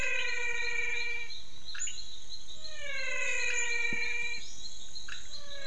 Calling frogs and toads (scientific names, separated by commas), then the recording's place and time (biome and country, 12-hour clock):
Physalaemus albonotatus, Leptodactylus podicipinus
Cerrado, Brazil, 5:45pm